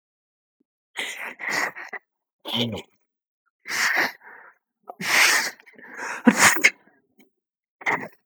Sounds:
Sneeze